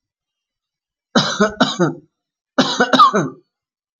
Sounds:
Cough